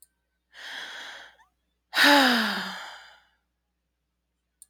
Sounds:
Sigh